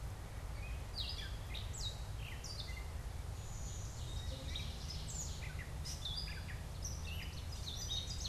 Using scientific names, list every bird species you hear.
Dumetella carolinensis, Vermivora cyanoptera, Seiurus aurocapilla